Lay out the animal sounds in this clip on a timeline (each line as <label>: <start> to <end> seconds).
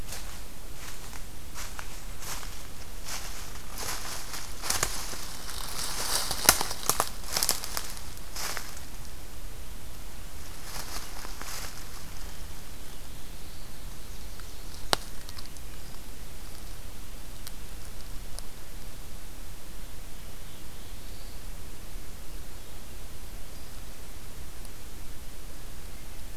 Black-throated Blue Warbler (Setophaga caerulescens): 12.5 to 13.9 seconds
Nashville Warbler (Leiothlypis ruficapilla): 13.8 to 15.1 seconds
Black-throated Blue Warbler (Setophaga caerulescens): 19.7 to 21.6 seconds